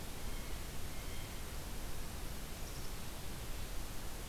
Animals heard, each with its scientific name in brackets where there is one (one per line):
Blue Jay (Cyanocitta cristata)